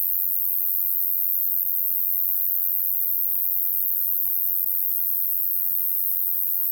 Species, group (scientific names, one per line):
Ruspolia nitidula
Orthoptera